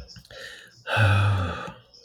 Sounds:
Sigh